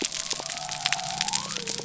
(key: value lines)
label: biophony
recorder: SoundTrap 300